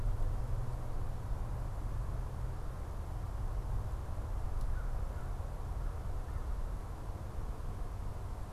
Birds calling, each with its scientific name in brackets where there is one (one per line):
American Crow (Corvus brachyrhynchos)